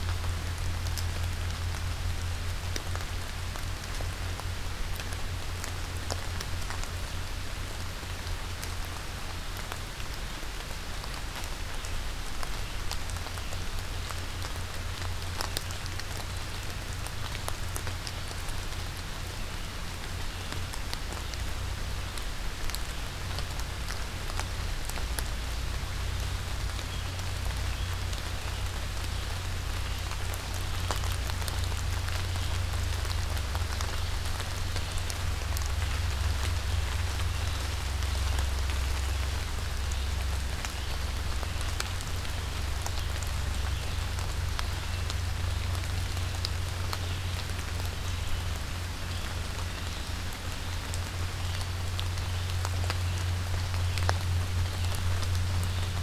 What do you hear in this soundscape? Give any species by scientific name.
Vireo olivaceus